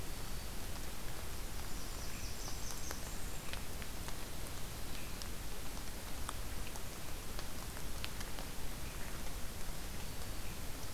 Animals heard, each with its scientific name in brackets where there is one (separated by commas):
Black-throated Green Warbler (Setophaga virens), Blackburnian Warbler (Setophaga fusca)